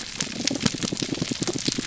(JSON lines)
{"label": "biophony, pulse", "recorder": "SoundTrap 300"}